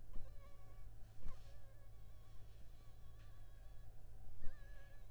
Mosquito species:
Anopheles funestus s.l.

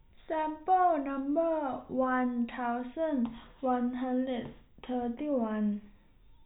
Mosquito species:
no mosquito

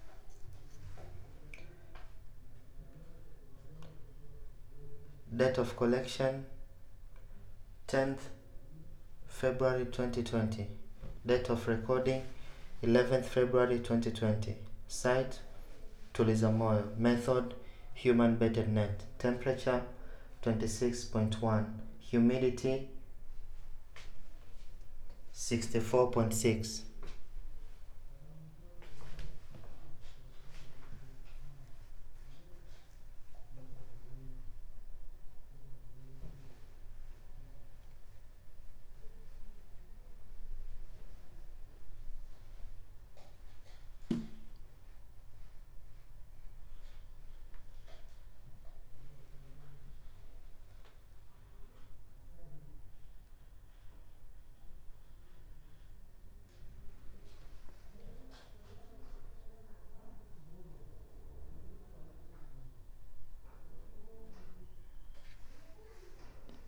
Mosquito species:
no mosquito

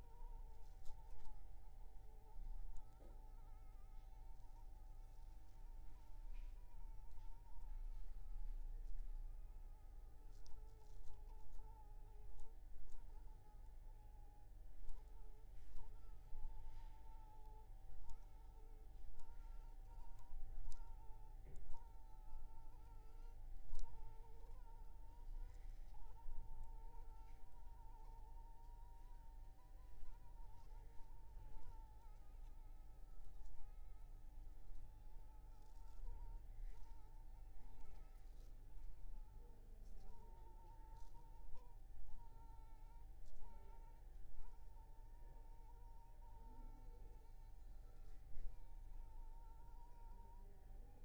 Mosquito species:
Anopheles funestus s.s.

